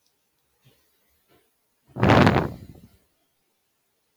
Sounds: Sigh